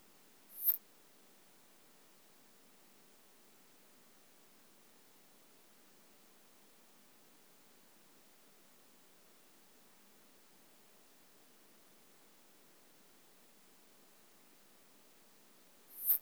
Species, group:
Poecilimon nonveilleri
Orthoptera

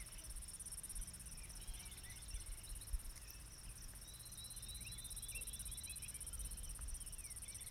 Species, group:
Diceroprocta vitripennis
Cicadidae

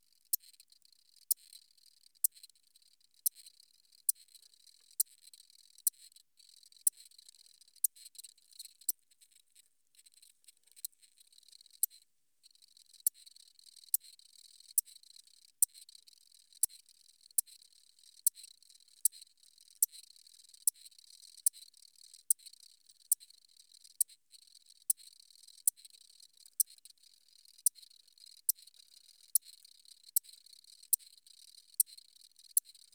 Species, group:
Gryllus bimaculatus
Orthoptera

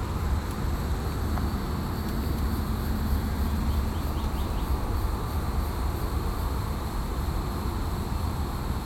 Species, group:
Neocicada hieroglyphica
Cicadidae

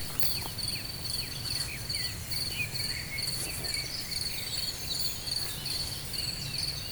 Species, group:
Gryllus campestris
Orthoptera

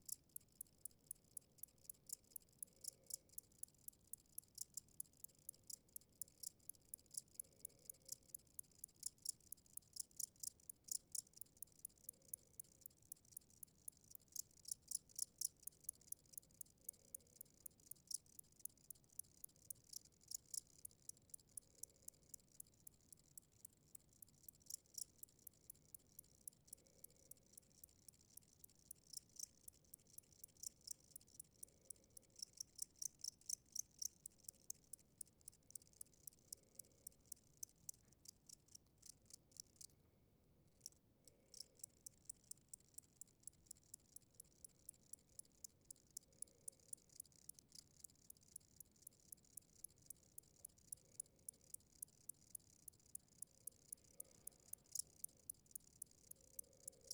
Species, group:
Gryllus bimaculatus
Orthoptera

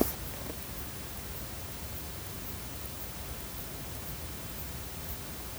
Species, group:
Thyreonotus corsicus
Orthoptera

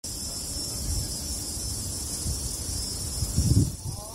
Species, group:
Thopha saccata
Cicadidae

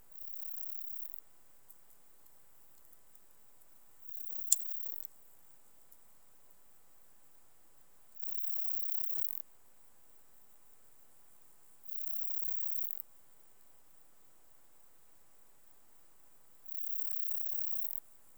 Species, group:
Platycleis iberica
Orthoptera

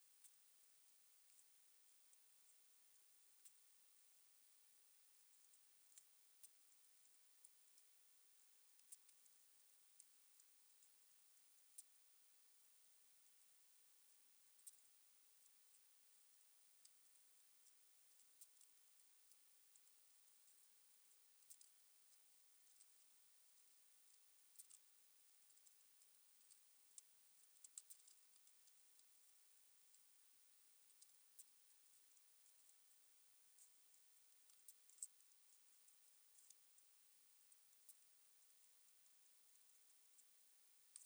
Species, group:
Leptophyes punctatissima
Orthoptera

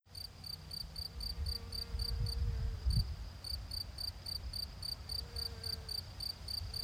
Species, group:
Gryllus campestris
Orthoptera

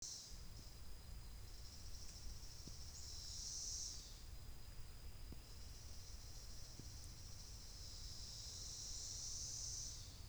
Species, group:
Magicicada tredecassini
Cicadidae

